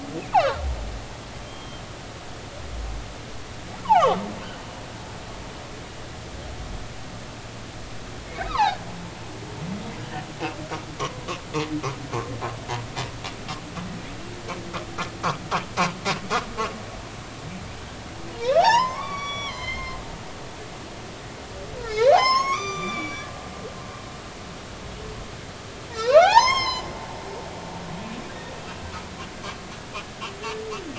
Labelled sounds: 0.3	0.6	humpback whale, 0.80 to 1.7 kHz
1.4	1.8	humpback whale, 3.1 to 3.3 kHz
8.5	8.8	humpback whale, 0.80 to 2.2 kHz
11.0	11.3	humpback whale, 0.93 to 1.2 kHz
18.3	20.0	humpback whale, 0.80 to 5.8 kHz
21.8	23.3	humpback whale, 0.80 to 7.2 kHz
25.9	26.9	humpback whale, 0.80 to 6.6 kHz

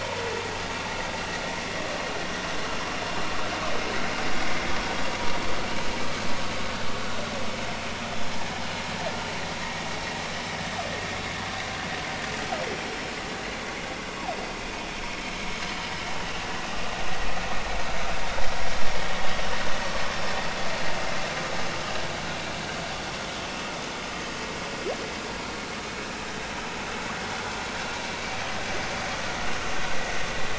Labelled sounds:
15.7	15.9	humpback whale, 2.9 to 3.1 kHz

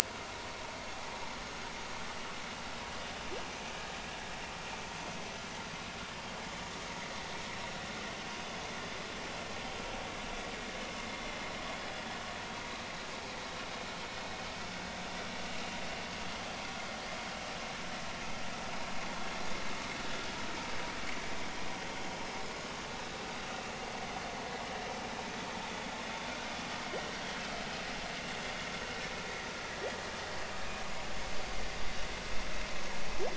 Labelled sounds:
0.9	1.2	humpback whale, 0.80 to 0.99 kHz

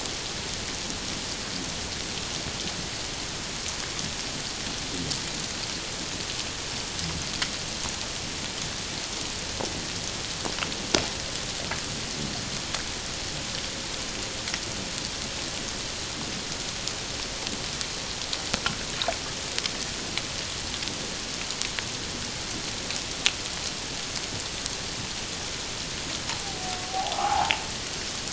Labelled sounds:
26.9	27.6	humpback whale, 0.78 to 1.1 kHz

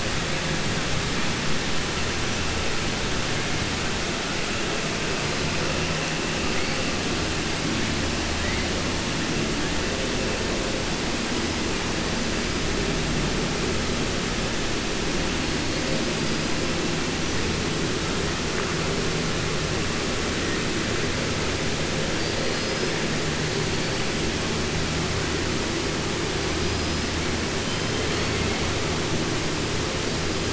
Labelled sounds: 22.1	22.9	killer whale, 4.2 to 5.2 kHz

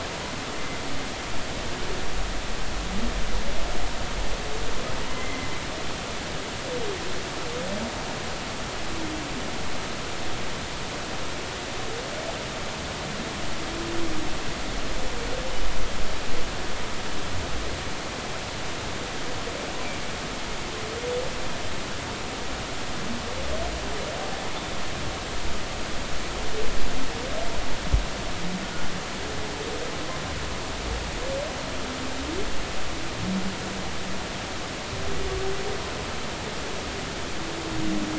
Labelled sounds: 5.1	5.5	humpback whale, 2.0 to 2.1 kHz

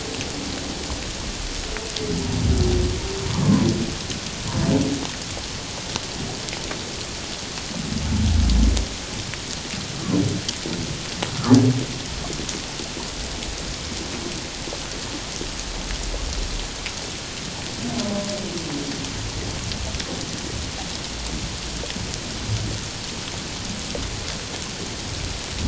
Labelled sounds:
3.3	3.7	humpback whale, 0.84 to 1.2 kHz

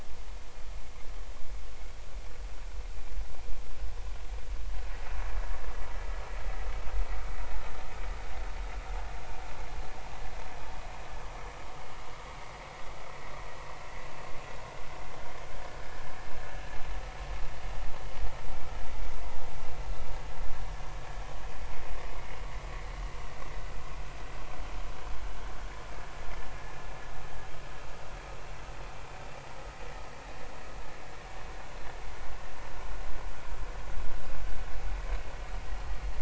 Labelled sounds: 15.7	16.0	vessel noise, 1.4 to 1.8 kHz

